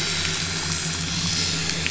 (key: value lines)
label: anthrophony, boat engine
recorder: SoundTrap 500